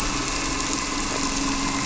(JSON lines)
{"label": "anthrophony, boat engine", "recorder": "SoundTrap 300"}